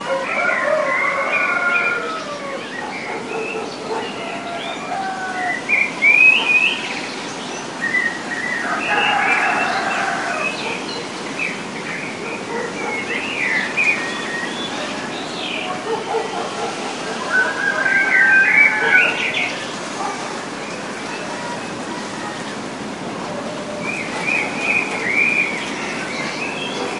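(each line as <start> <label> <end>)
0.0 A rooster crows in the distance. 3.0
0.0 A bird chirps in the background. 21.8
3.0 A dog barks muffled in the distance. 4.9
8.7 A rooster crows in the distance. 10.7
12.0 A dog barks in the distance. 13.8
15.6 A dog barks repeatedly in the distance. 20.6
17.3 A rooster crows in the distance. 19.6
24.1 A bird chirps clearly. 27.0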